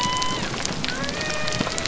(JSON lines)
{"label": "biophony", "recorder": "SoundTrap 300"}